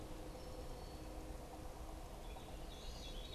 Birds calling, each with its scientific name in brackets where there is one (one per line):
Veery (Catharus fuscescens)